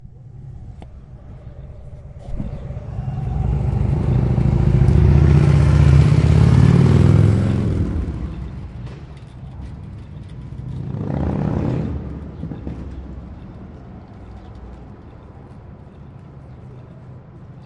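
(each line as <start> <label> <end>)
2.2 A motorcycle passes by and fades away. 8.7
10.3 A motorcycle passes by and fades away. 14.6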